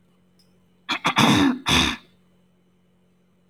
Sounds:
Throat clearing